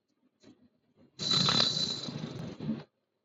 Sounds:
Sneeze